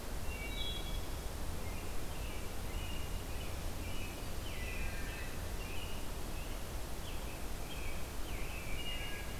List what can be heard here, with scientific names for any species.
Hylocichla mustelina, Turdus migratorius